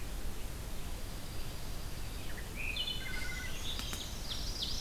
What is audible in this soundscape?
Red-eyed Vireo, Dark-eyed Junco, Wood Thrush, Ovenbird